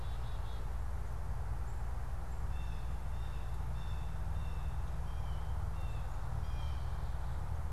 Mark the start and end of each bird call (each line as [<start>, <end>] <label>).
[0.00, 0.94] Black-capped Chickadee (Poecile atricapillus)
[0.00, 7.14] Blue Jay (Cyanocitta cristata)